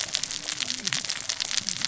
{"label": "biophony, cascading saw", "recorder": "SoundTrap 600 or HydroMoth"}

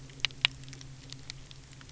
{"label": "anthrophony, boat engine", "recorder": "SoundTrap 300"}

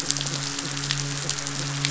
{"label": "biophony", "recorder": "SoundTrap 500"}
{"label": "biophony, midshipman", "recorder": "SoundTrap 500"}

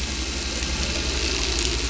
{"label": "anthrophony, boat engine", "recorder": "SoundTrap 500"}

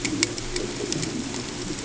{"label": "ambient", "recorder": "HydroMoth"}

